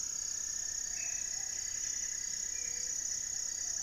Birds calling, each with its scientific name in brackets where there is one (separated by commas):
Cinnamon-throated Woodcreeper (Dendrexetastes rufigula), Buff-breasted Wren (Cantorchilus leucotis), Spot-winged Antshrike (Pygiptila stellaris), Black-faced Antthrush (Formicarius analis), Gray-fronted Dove (Leptotila rufaxilla)